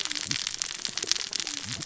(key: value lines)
label: biophony, cascading saw
recorder: SoundTrap 600 or HydroMoth